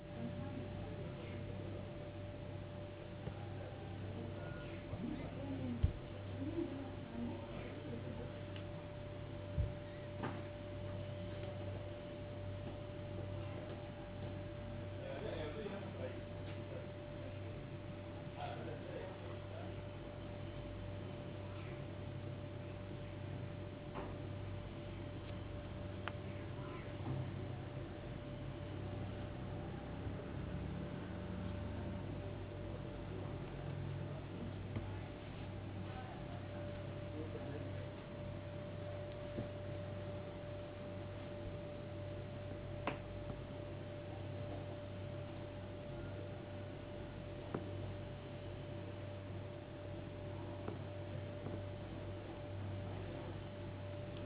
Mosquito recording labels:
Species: no mosquito; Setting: insect culture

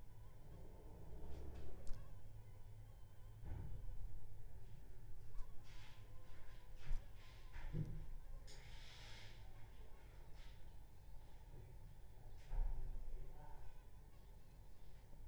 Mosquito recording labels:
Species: Anopheles funestus s.s.; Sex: female; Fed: unfed; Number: one; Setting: cup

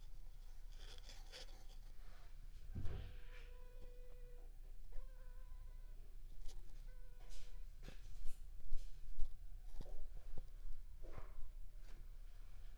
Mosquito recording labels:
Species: Aedes aegypti; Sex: female; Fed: unfed; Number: one; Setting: cup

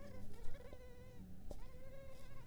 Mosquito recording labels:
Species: Culex pipiens complex; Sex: female; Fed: unfed; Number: one; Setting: cup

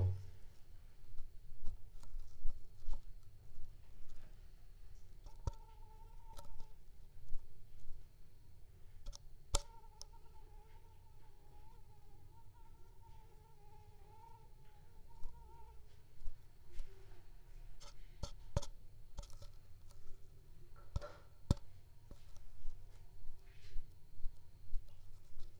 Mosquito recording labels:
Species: Anopheles squamosus; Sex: female; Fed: unfed; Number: one; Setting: cup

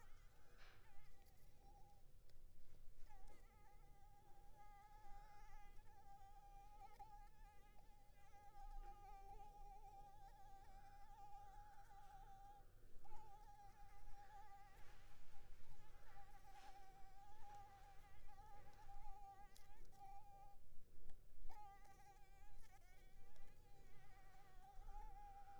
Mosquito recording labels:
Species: Anopheles arabiensis; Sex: female; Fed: unfed; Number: one; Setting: cup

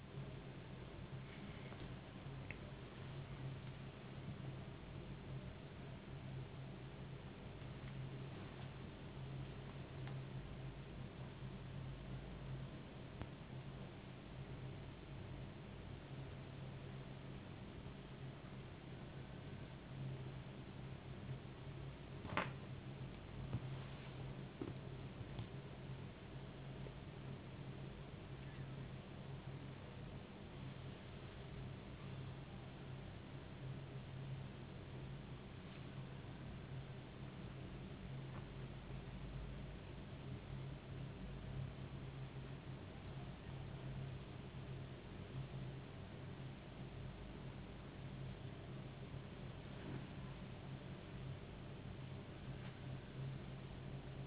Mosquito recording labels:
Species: no mosquito; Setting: insect culture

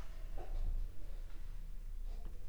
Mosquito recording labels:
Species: Anopheles arabiensis; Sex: female; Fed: unfed; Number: one; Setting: cup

